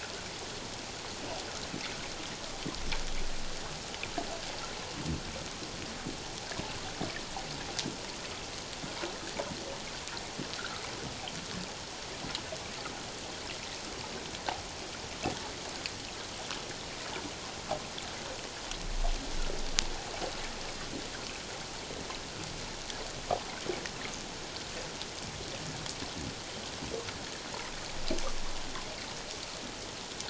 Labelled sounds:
10.6	10.8	water noise, 1.2 to 1.7 kHz

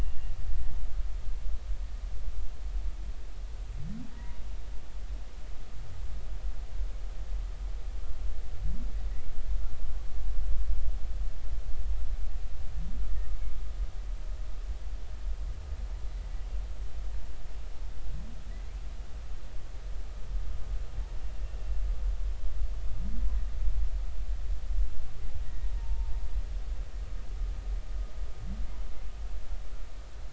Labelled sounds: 4.1	4.4	humpback whale, 0.93 to 2.0 kHz
25.6	26.1	humpback whale, 0.86 to 0.96 kHz

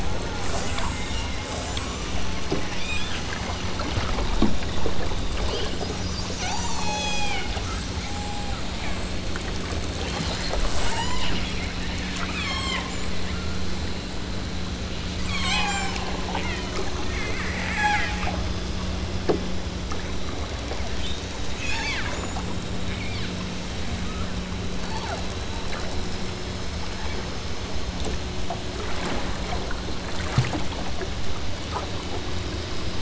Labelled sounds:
1.5	2.2	killer whale, southern Alaska resident, 4.5 to 8.0 kHz
2.7	3.3	killer whale, southern Alaska resident, 1.6 to 8.0 kHz
6.4	7.5	killer whale, southern Alaska resident, 0.34 to 5.4 kHz
8.0	8.7	killer whale, southern Alaska resident, 0.43 to 1.4 kHz
10.8	11.3	killer whale, southern Alaska resident, 0.47 to 8.0 kHz
12.2	12.9	killer whale, southern Alaska resident, 0.86 to 8.0 kHz
15.2	16.8	killer whale, southern Alaska resident, 0.43 to 8.0 kHz
17.7	18.2	killer whale, southern Alaska resident, 0.51 to 8.0 kHz
21.5	22.1	killer whale, southern Alaska resident, 0.60 to 8.0 kHz
22.8	23.3	killer whale, southern Alaska resident, 1.3 to 4.0 kHz
23.9	24.4	killer whale, southern Alaska resident, 0.86 to 2.6 kHz
24.8	25.4	killer whale, southern Alaska resident, 0.47 to 1.5 kHz

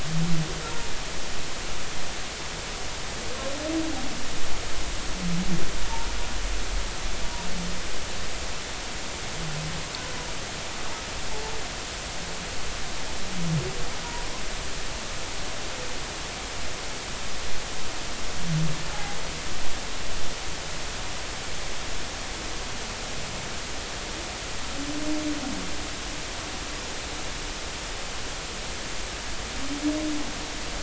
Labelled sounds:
14.0	14.3	humpback whale, 0.90 to 0.99 kHz
18.9	19.2	humpback whale, 0.80 to 0.90 kHz

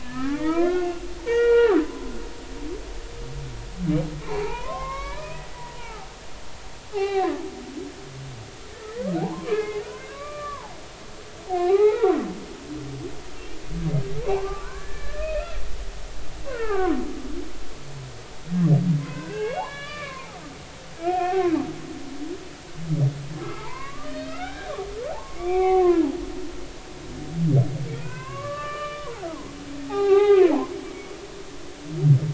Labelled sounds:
0.0	2.1	humpback whale, 0.80 to 3.4 kHz
4.2	6.1	humpback whale, 0.80 to 5.6 kHz
6.9	7.4	humpback whale, 0.80 to 4.1 kHz
9.2	10.7	humpback whale, 0.80 to 2.6 kHz
11.6	12.2	humpback whale, 0.80 to 2.6 kHz
13.4	13.6	humpback whale, 2.7 to 2.9 kHz
14.4	15.6	humpback whale, 0.93 to 2.8 kHz
16.5	17.0	humpback whale, 0.80 to 1.9 kHz
19.0	20.4	humpback whale, 0.80 to 4.0 kHz
21.0	21.5	humpback whale, 0.80 to 3.3 kHz
23.4	26.1	humpback whale, 0.80 to 4.5 kHz
27.9	29.3	humpback whale, 0.80 to 3.0 kHz
29.9	30.7	humpback whale, 0.80 to 3.4 kHz

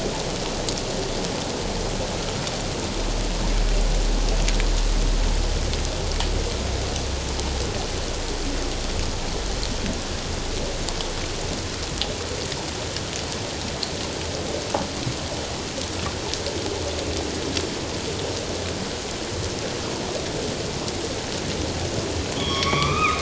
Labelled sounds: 22.4	23.1	humpback whale, 1.0 to 5.7 kHz

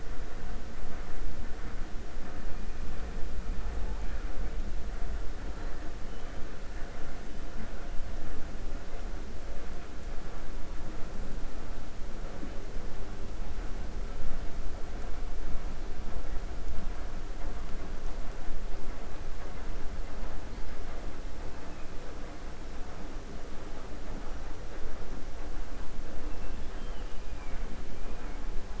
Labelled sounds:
26.3	27.2	killer whale, 2.2 to 3.5 kHz

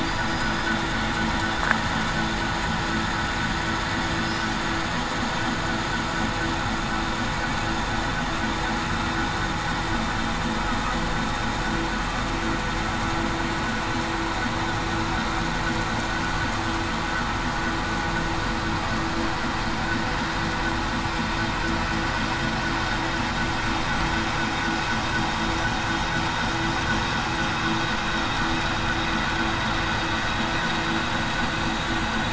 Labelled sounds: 0.0	0.7	killer whale, southern resident, 4.7 to 5.1 kHz

